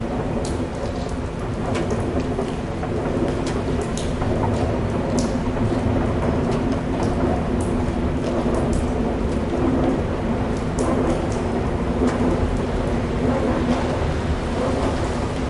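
Constant rain falls while a train sounds muffled in the distance. 0:00.0 - 0:15.5

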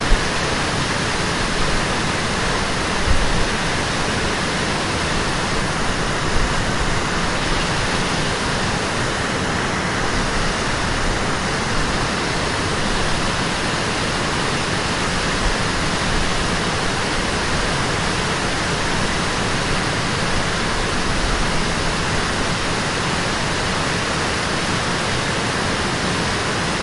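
A river flows loudly and aggressively in the distance. 0:00.0 - 0:26.8

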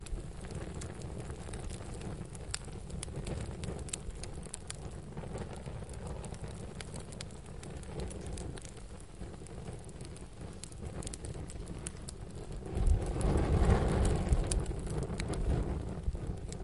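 A fire is sizzling quietly. 0:00.0 - 0:16.6

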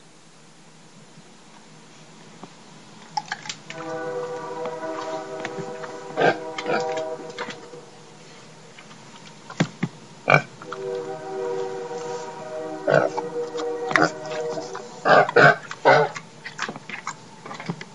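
A train approaches, honking loudly from a distance. 0:03.1 - 0:07.6
A pig is eating and honking continuously. 0:03.7 - 0:07.6
A pig chomps and oinks rapidly and closely. 0:09.5 - 0:10.5
A train horn honks continuously as it approaches the station from a distance, creating an echo. 0:10.7 - 0:15.0
A pig chomps and oinks loudly and closely. 0:10.7 - 0:16.2
A pig chomps continuously very close. 0:16.4 - 0:17.8

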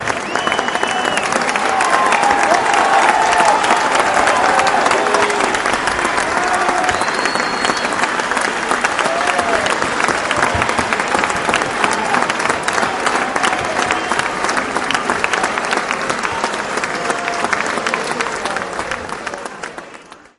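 Loud clapping, shouting, and high-pitched whistling are heard. 0:00.0 - 0:08.5
Clapping, whistling, and shouting of varying intensity. 0:00.0 - 0:20.3

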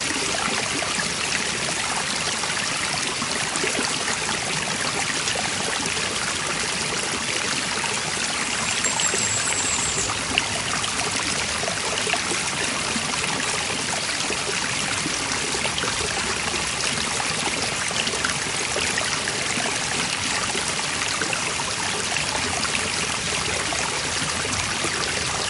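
A small water spring flowing. 0:00.0 - 0:25.5
A bird tweets with a small water stream in the background. 0:08.3 - 0:10.4

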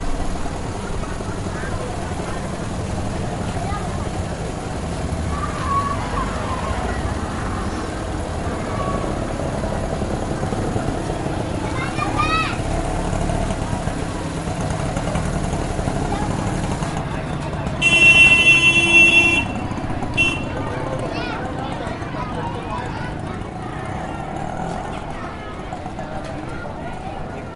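A sewing machine whizzes repetitively nearby outdoors. 0:00.0 - 0:17.2
Loud urban street noise outdoors. 0:00.0 - 0:27.6
A vehicle honks loudly and continuously nearby. 0:17.7 - 0:19.6
A vehicle honks shortly nearby. 0:20.1 - 0:20.4

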